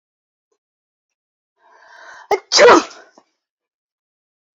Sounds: Sneeze